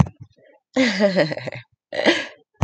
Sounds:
Laughter